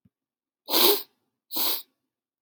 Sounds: Sniff